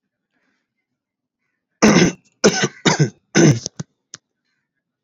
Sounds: Throat clearing